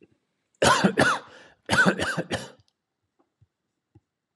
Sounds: Cough